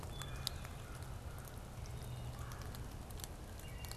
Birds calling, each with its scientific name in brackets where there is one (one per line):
American Crow (Corvus brachyrhynchos)
Wood Thrush (Hylocichla mustelina)
Red-bellied Woodpecker (Melanerpes carolinus)